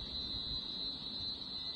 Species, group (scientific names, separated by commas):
Cyclochila australasiae, Cicadidae